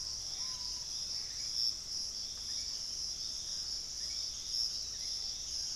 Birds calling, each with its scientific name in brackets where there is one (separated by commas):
Hauxwell's Thrush (Turdus hauxwelli), Piratic Flycatcher (Legatus leucophaius), Screaming Piha (Lipaugus vociferans)